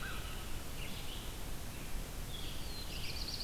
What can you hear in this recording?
Red-eyed Vireo, Black-throated Blue Warbler